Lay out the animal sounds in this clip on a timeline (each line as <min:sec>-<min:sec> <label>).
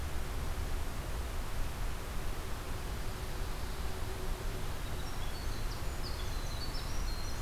0:04.6-0:07.4 Winter Wren (Troglodytes hiemalis)